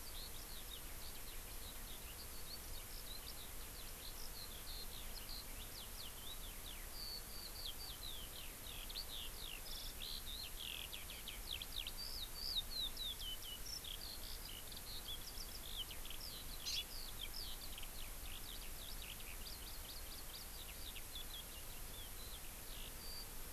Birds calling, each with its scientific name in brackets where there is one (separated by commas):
Hawaii Amakihi (Chlorodrepanis virens), Eurasian Skylark (Alauda arvensis)